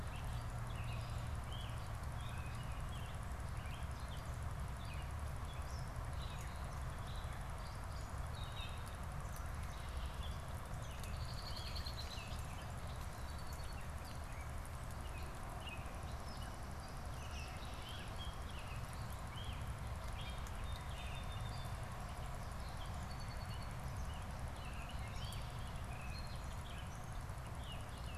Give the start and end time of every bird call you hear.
[0.03, 4.23] American Robin (Turdus migratorius)
[4.43, 28.17] Gray Catbird (Dumetella carolinensis)
[10.63, 12.63] Red-winged Blackbird (Agelaius phoeniceus)
[20.43, 22.03] Song Sparrow (Melospiza melodia)
[22.43, 27.03] Song Sparrow (Melospiza melodia)

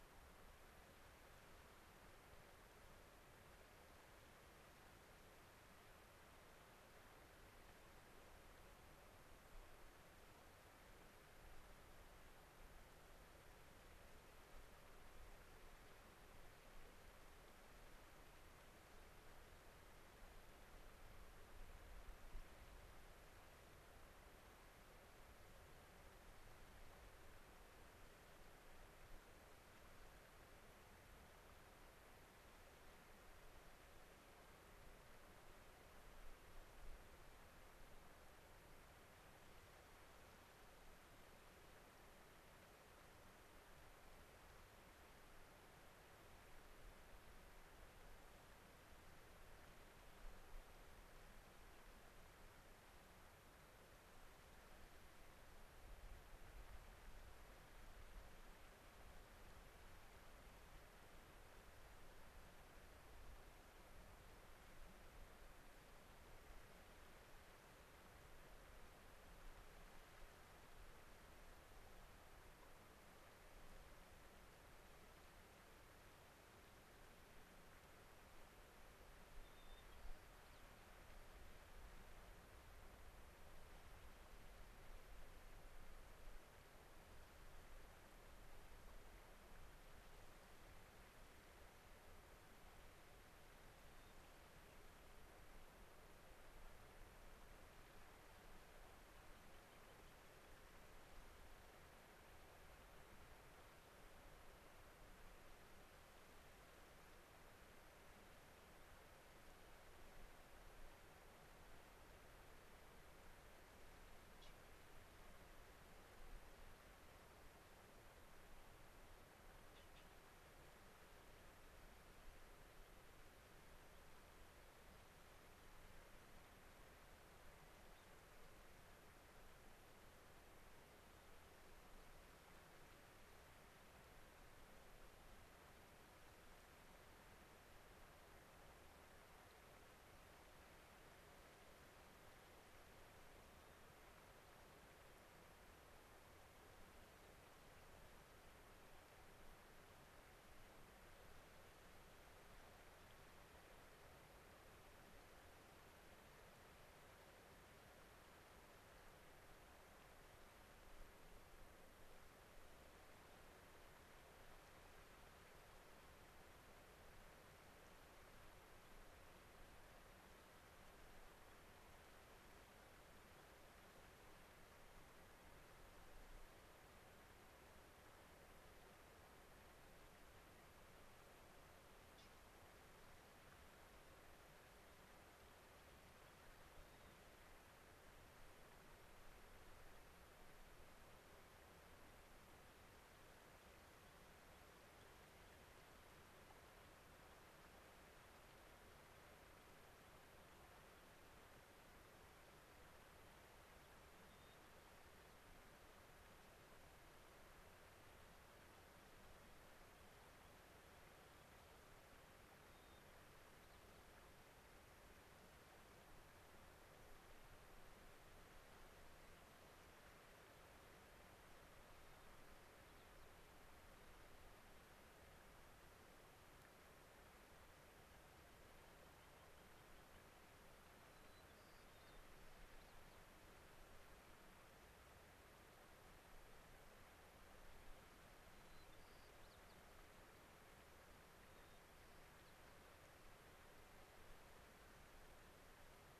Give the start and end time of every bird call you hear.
[79.39, 80.69] White-crowned Sparrow (Zonotrichia leucophrys)
[93.89, 94.19] White-crowned Sparrow (Zonotrichia leucophrys)
[99.39, 100.39] American Pipit (Anthus rubescens)
[127.89, 128.09] unidentified bird
[171.39, 171.59] unidentified bird
[173.29, 173.49] unidentified bird
[186.89, 187.19] White-crowned Sparrow (Zonotrichia leucophrys)
[193.49, 195.09] unidentified bird
[204.19, 204.59] White-crowned Sparrow (Zonotrichia leucophrys)
[212.59, 213.99] White-crowned Sparrow (Zonotrichia leucophrys)
[221.99, 223.29] White-crowned Sparrow (Zonotrichia leucophrys)
[228.49, 230.39] American Pipit (Anthus rubescens)
[230.99, 233.19] White-crowned Sparrow (Zonotrichia leucophrys)
[238.39, 239.79] White-crowned Sparrow (Zonotrichia leucophrys)
[241.49, 242.59] White-crowned Sparrow (Zonotrichia leucophrys)

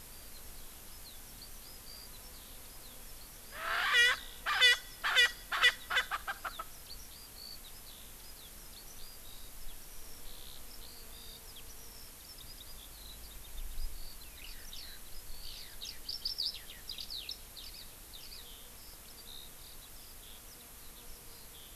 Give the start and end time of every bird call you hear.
[0.10, 21.76] Eurasian Skylark (Alauda arvensis)
[3.50, 6.70] Erckel's Francolin (Pternistis erckelii)

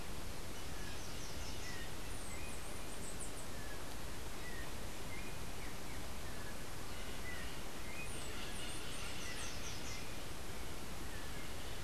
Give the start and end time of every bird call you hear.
[1.98, 3.48] Chestnut-capped Brushfinch (Arremon brunneinucha)
[7.88, 9.58] Chestnut-capped Brushfinch (Arremon brunneinucha)

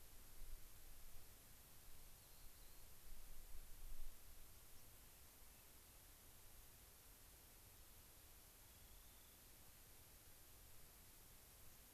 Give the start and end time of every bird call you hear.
[2.09, 2.89] Rock Wren (Salpinctes obsoletus)
[4.69, 4.89] White-crowned Sparrow (Zonotrichia leucophrys)
[5.39, 6.09] Rock Wren (Salpinctes obsoletus)
[8.49, 9.49] Rock Wren (Salpinctes obsoletus)

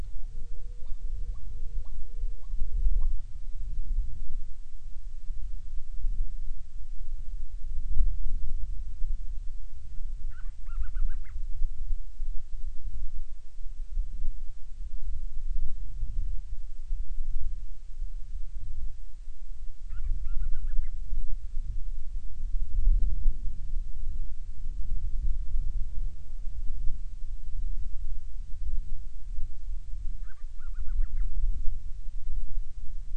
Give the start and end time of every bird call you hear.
[0.10, 3.20] Hawaiian Petrel (Pterodroma sandwichensis)
[10.20, 11.40] Band-rumped Storm-Petrel (Hydrobates castro)
[19.80, 21.00] Band-rumped Storm-Petrel (Hydrobates castro)
[30.10, 31.40] Band-rumped Storm-Petrel (Hydrobates castro)

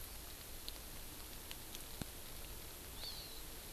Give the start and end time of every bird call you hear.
[2.91, 3.51] Hawaii Amakihi (Chlorodrepanis virens)

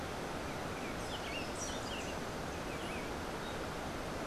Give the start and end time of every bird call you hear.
[0.88, 2.28] Buff-throated Saltator (Saltator maximus)

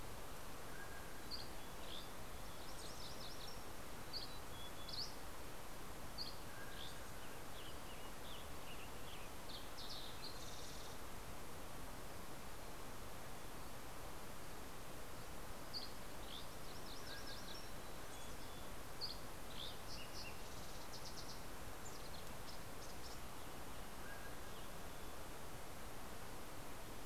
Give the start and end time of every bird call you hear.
[0.50, 1.40] Mountain Quail (Oreortyx pictus)
[0.50, 2.20] Dusky Flycatcher (Empidonax oberholseri)
[2.40, 4.10] MacGillivray's Warbler (Geothlypis tolmiei)
[3.70, 5.30] Mountain Chickadee (Poecile gambeli)
[4.10, 7.10] Dusky Flycatcher (Empidonax oberholseri)
[5.60, 7.50] Mountain Quail (Oreortyx pictus)
[6.50, 9.50] Western Tanager (Piranga ludoviciana)
[8.80, 11.40] Fox Sparrow (Passerella iliaca)
[14.80, 17.00] Dusky Flycatcher (Empidonax oberholseri)
[16.20, 18.00] MacGillivray's Warbler (Geothlypis tolmiei)
[16.40, 18.30] Mountain Quail (Oreortyx pictus)
[17.60, 18.90] Mountain Chickadee (Poecile gambeli)
[18.60, 19.80] Dusky Flycatcher (Empidonax oberholseri)
[19.50, 21.80] Fox Sparrow (Passerella iliaca)
[21.70, 25.60] Mountain Chickadee (Poecile gambeli)
[23.60, 25.00] Mountain Quail (Oreortyx pictus)

